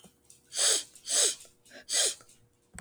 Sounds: Sniff